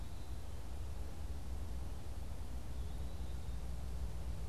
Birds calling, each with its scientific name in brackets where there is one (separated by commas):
unidentified bird